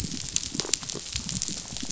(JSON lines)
{"label": "biophony, rattle response", "recorder": "SoundTrap 500"}